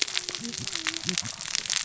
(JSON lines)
{"label": "biophony, cascading saw", "recorder": "SoundTrap 600 or HydroMoth"}